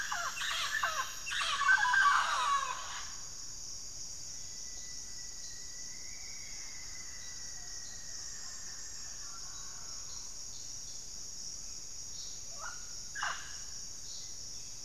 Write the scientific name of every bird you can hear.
Amazona farinosa, Formicarius rufifrons, Sirystes albocinereus